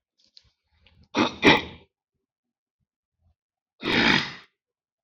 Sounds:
Throat clearing